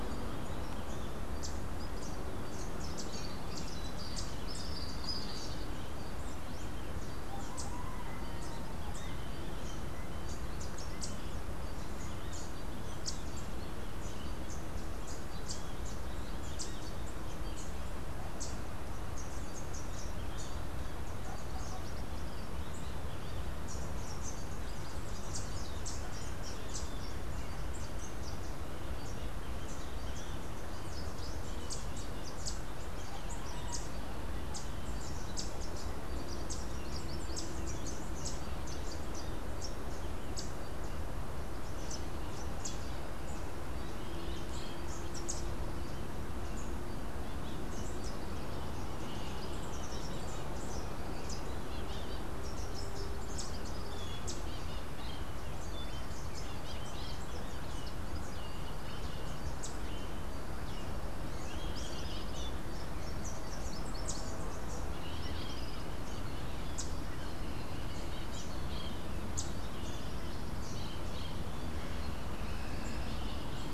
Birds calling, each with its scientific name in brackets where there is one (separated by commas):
Rufous-capped Warbler (Basileuterus rufifrons), Melodious Blackbird (Dives dives)